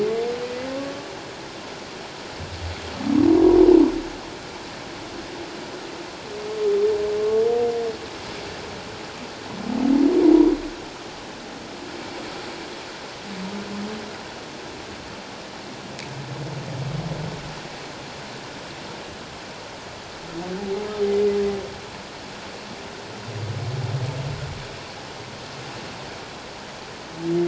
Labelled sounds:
0.8	1.1	humpback whale, 1.1 to 1.2 kHz

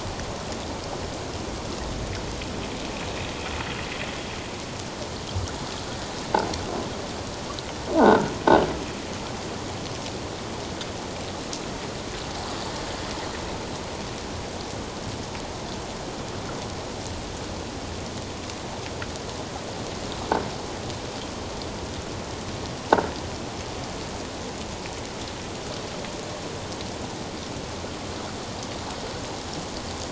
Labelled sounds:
8.0	8.3	croaking sound likely from a nearby submerged object, 1.3 to 1.7 kHz

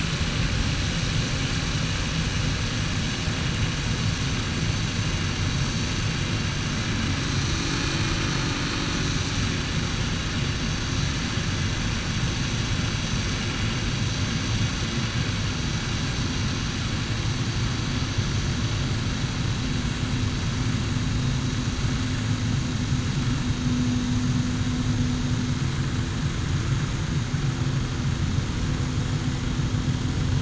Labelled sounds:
7.3	7.8	vessel noise, 4.1 to 4.4 kHz

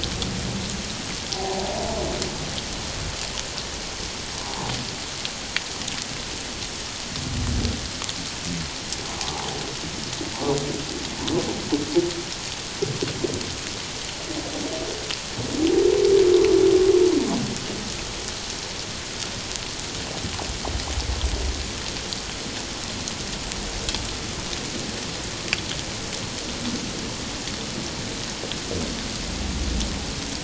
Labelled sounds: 1.3	1.7	humpback whale, 0.78 to 1.0 kHz
4.4	4.7	humpback whale, 0.78 to 1.1 kHz

